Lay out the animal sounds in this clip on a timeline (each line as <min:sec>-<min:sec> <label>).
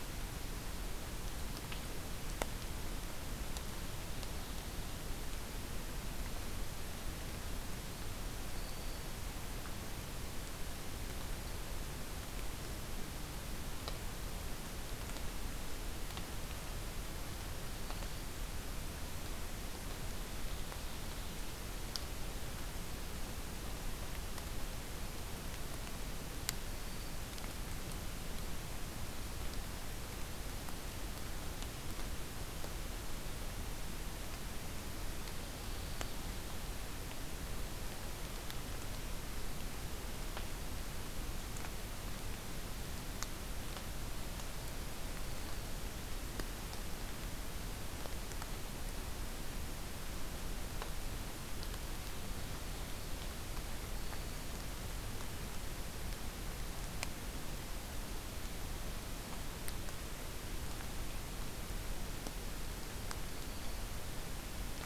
0:08.4-0:09.1 Black-throated Green Warbler (Setophaga virens)
0:17.5-0:18.4 Black-throated Green Warbler (Setophaga virens)
0:19.7-0:21.6 Ovenbird (Seiurus aurocapilla)
0:26.5-0:27.2 Black-throated Green Warbler (Setophaga virens)
0:35.4-0:36.2 Black-throated Green Warbler (Setophaga virens)
0:45.1-0:45.8 Black-throated Green Warbler (Setophaga virens)
0:51.8-0:53.3 Ovenbird (Seiurus aurocapilla)
0:53.8-0:54.5 Black-throated Green Warbler (Setophaga virens)
1:03.3-1:03.9 Black-throated Green Warbler (Setophaga virens)